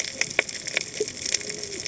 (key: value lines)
label: biophony, cascading saw
recorder: HydroMoth